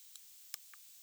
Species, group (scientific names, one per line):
Odontura aspericauda
Orthoptera